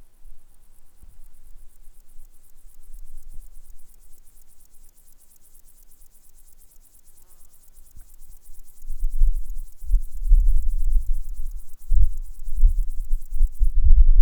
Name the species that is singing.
Chorthippus apricarius